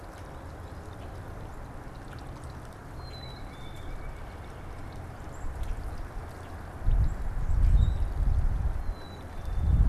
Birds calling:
Black-capped Chickadee (Poecile atricapillus)
White-breasted Nuthatch (Sitta carolinensis)
Common Grackle (Quiscalus quiscula)
unidentified bird

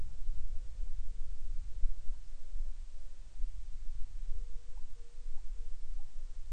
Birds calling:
Hawaiian Petrel (Pterodroma sandwichensis)

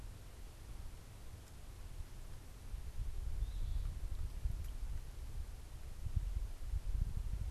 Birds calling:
Eastern Phoebe (Sayornis phoebe)

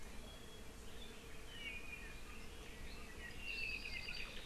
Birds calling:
Apapane (Himatione sanguinea)

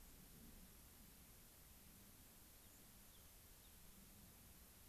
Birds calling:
White-crowned Sparrow (Zonotrichia leucophrys)
Rock Wren (Salpinctes obsoletus)

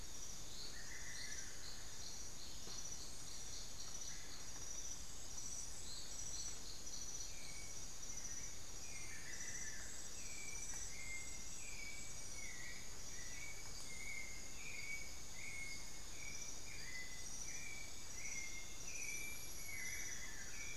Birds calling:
White-necked Thrush (Turdus albicollis)
Long-winged Antwren (Myrmotherula longipennis)
Amazonian Barred-Woodcreeper (Dendrocolaptes certhia)

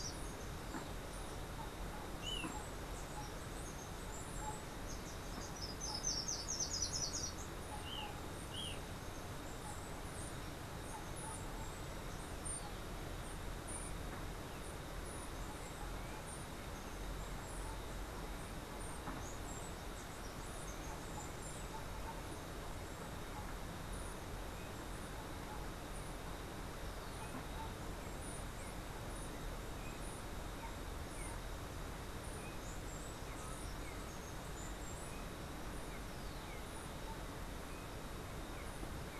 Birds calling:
Golden-faced Tyrannulet (Zimmerius chrysops)
Slate-throated Redstart (Myioborus miniatus)
Steely-vented Hummingbird (Saucerottia saucerottei)

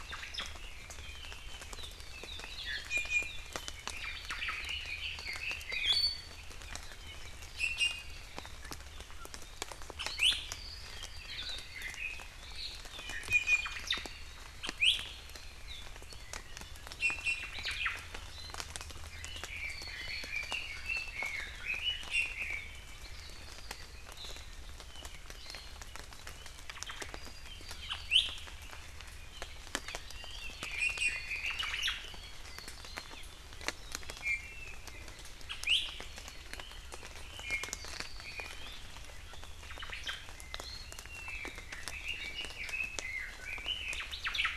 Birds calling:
Hawaii Akepa (Loxops coccineus)
Omao (Myadestes obscurus)
Red-billed Leiothrix (Leiothrix lutea)
Iiwi (Drepanis coccinea)

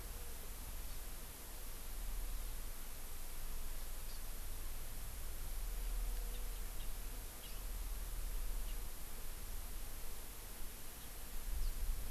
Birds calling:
Hawaii Amakihi (Chlorodrepanis virens)
Eurasian Skylark (Alauda arvensis)

